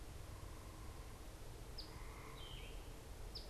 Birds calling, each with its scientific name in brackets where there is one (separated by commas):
Yellow-throated Vireo (Vireo flavifrons), Eastern Phoebe (Sayornis phoebe)